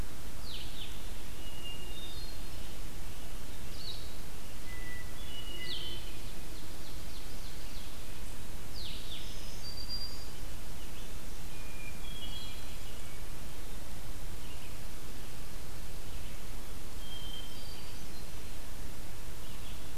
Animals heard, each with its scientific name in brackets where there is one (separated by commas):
Blue-headed Vireo (Vireo solitarius), Ovenbird (Seiurus aurocapilla), Red-eyed Vireo (Vireo olivaceus), Hermit Thrush (Catharus guttatus), Black-throated Green Warbler (Setophaga virens)